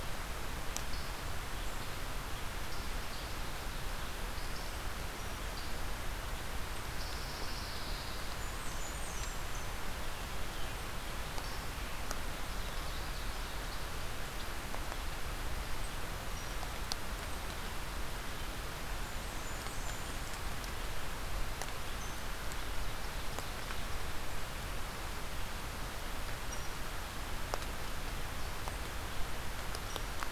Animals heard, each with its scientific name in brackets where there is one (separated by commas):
Blackburnian Warbler (Setophaga fusca), Pine Warbler (Setophaga pinus), unknown mammal